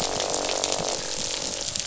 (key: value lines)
label: biophony, croak
recorder: SoundTrap 500